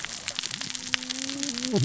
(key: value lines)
label: biophony, cascading saw
recorder: SoundTrap 600 or HydroMoth